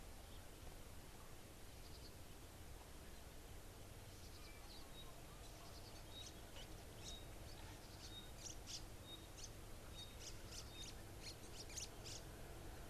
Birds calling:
Pygmy Batis (Batis perkeo), White-browed Sparrow-Weaver (Plocepasser mahali)

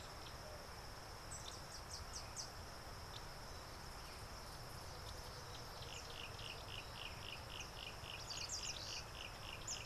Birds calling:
African Goshawk (Accipiter tachiro), Yellow-breasted Apalis (Apalis flavida)

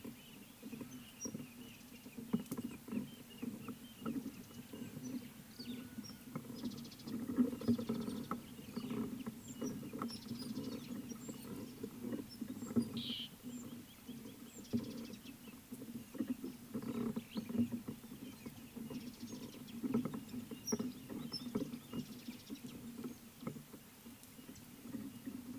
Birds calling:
Slate-colored Boubou (Laniarius funebris), Crested Francolin (Ortygornis sephaena), Mariqua Sunbird (Cinnyris mariquensis), Rufous Chatterer (Argya rubiginosa)

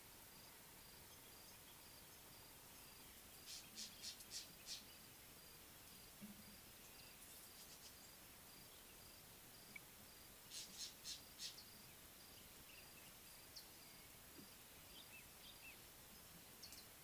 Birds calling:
Mariqua Sunbird (Cinnyris mariquensis), Northern Puffback (Dryoscopus gambensis)

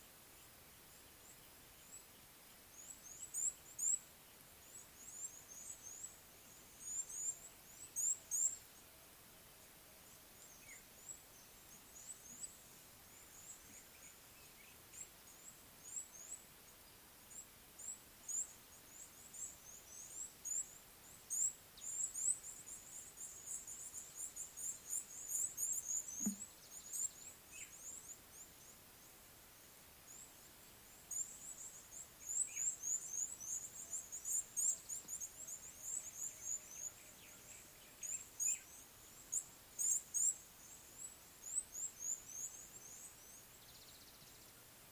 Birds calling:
Red-cheeked Cordonbleu (Uraeginthus bengalus)

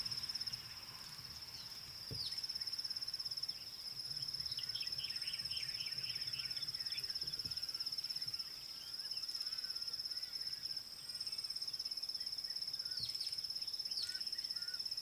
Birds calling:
White Helmetshrike (Prionops plumatus)

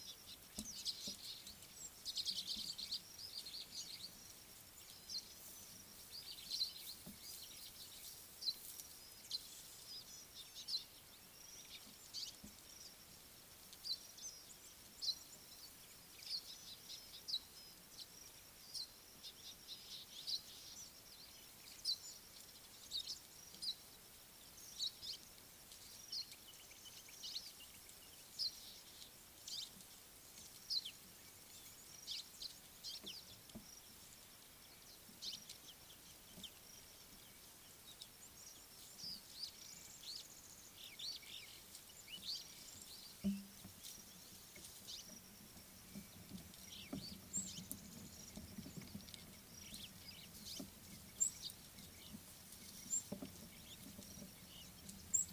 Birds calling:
Scarlet-chested Sunbird (Chalcomitra senegalensis), Chestnut Sparrow (Passer eminibey)

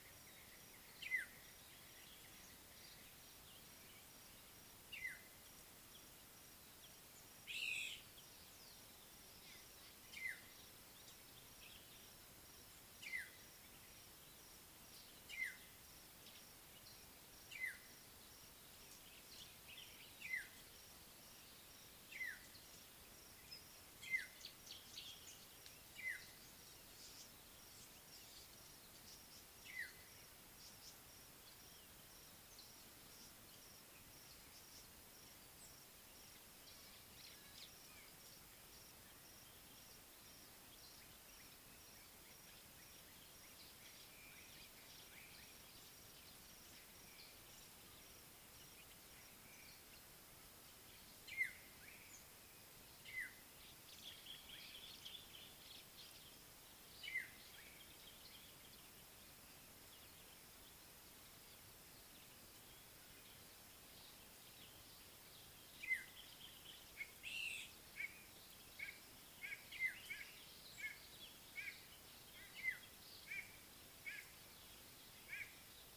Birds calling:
African Black-headed Oriole (Oriolus larvatus), White-bellied Go-away-bird (Corythaixoides leucogaster)

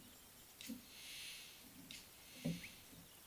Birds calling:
Slate-colored Boubou (Laniarius funebris)

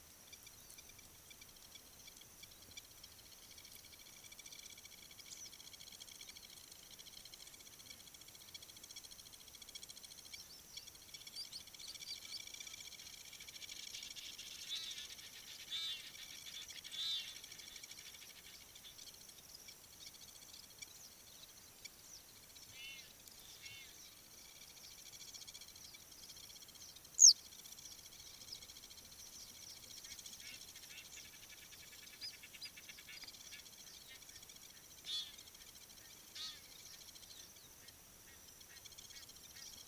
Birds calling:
Blacksmith Lapwing (Vanellus armatus), Egyptian Goose (Alopochen aegyptiaca), Western Yellow Wagtail (Motacilla flava)

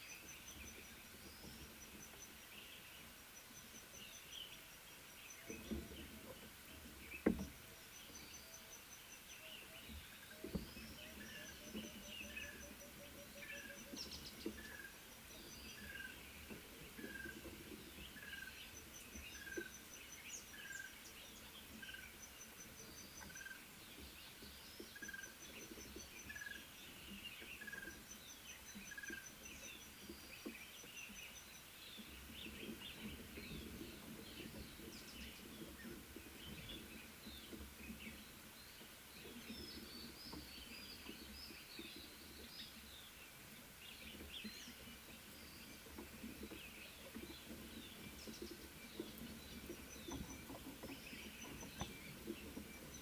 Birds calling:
Speckled Mousebird (Colius striatus), Red-fronted Tinkerbird (Pogoniulus pusillus), Little Bee-eater (Merops pusillus)

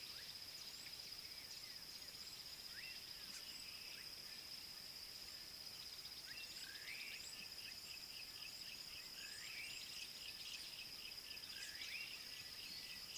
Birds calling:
Yellow-breasted Apalis (Apalis flavida)

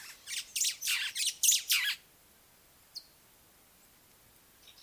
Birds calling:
White-browed Sparrow-Weaver (Plocepasser mahali)

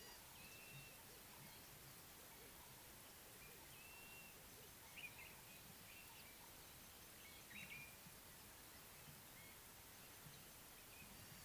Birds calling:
Blue-naped Mousebird (Urocolius macrourus)

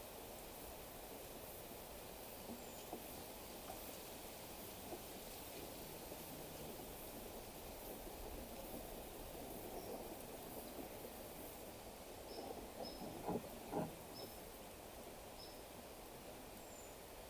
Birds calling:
Cinnamon-chested Bee-eater (Merops oreobates)

